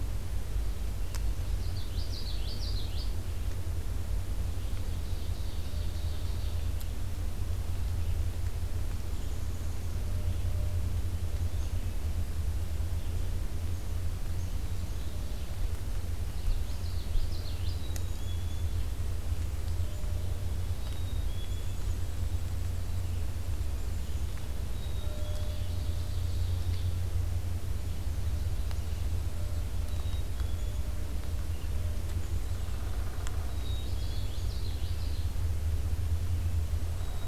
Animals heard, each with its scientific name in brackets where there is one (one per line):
Black-capped Chickadee (Poecile atricapillus)
Downy Woodpecker (Dryobates pubescens)
Common Yellowthroat (Geothlypis trichas)
Ovenbird (Seiurus aurocapilla)
Red-eyed Vireo (Vireo olivaceus)